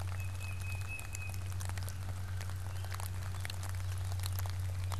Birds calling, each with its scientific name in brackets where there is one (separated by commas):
Tufted Titmouse (Baeolophus bicolor)